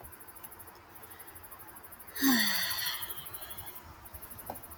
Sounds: Sigh